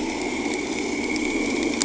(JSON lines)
{"label": "anthrophony, boat engine", "recorder": "HydroMoth"}